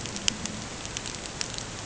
{"label": "ambient", "recorder": "HydroMoth"}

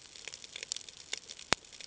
{"label": "ambient", "recorder": "HydroMoth"}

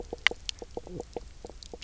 {"label": "biophony, knock croak", "recorder": "SoundTrap 300"}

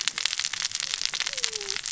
{"label": "biophony, cascading saw", "recorder": "SoundTrap 600 or HydroMoth"}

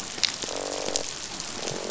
{"label": "biophony, croak", "recorder": "SoundTrap 500"}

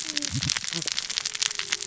{"label": "biophony, cascading saw", "recorder": "SoundTrap 600 or HydroMoth"}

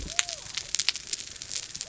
{"label": "biophony", "recorder": "SoundTrap 300"}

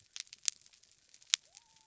{"label": "biophony", "recorder": "SoundTrap 300"}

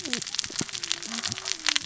{"label": "biophony, cascading saw", "recorder": "SoundTrap 600 or HydroMoth"}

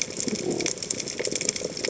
{"label": "biophony", "recorder": "HydroMoth"}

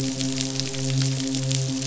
{"label": "biophony, midshipman", "recorder": "SoundTrap 500"}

